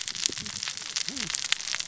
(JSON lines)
{"label": "biophony, cascading saw", "recorder": "SoundTrap 600 or HydroMoth"}